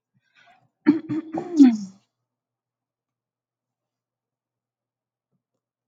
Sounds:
Throat clearing